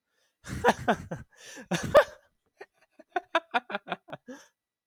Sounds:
Laughter